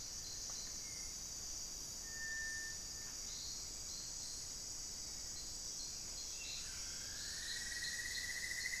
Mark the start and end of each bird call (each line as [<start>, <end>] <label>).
[0.00, 6.04] Cinereous Tinamou (Crypturellus cinereus)
[0.54, 1.44] Hauxwell's Thrush (Turdus hauxwelli)
[6.34, 8.80] Cinnamon-throated Woodcreeper (Dendrexetastes rufigula)